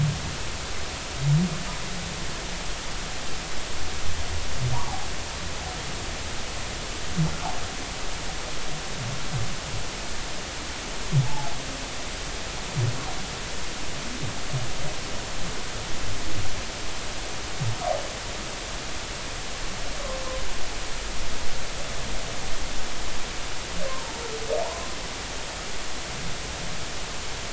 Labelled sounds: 11.2	11.5	humpback whale, 0.80 to 0.93 kHz
23.9	24.1	humpback whale, 0.83 to 1.1 kHz
24.6	24.9	humpback whale, 0.86 to 1.1 kHz

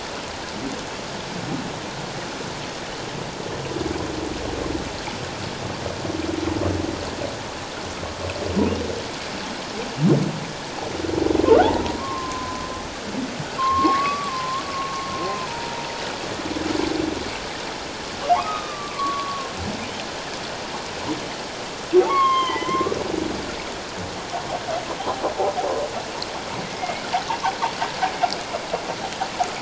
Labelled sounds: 12.0	12.6	humpback whale, 0.94 to 1.2 kHz
13.6	15.9	humpback whale, 0.88 to 1.3 kHz
18.3	19.5	humpback whale, 0.78 to 3.8 kHz
22.1	23.0	humpback whale, 0.84 to 3.4 kHz
26.6	27.0	humpback whale, 1.9 to 2.3 kHz

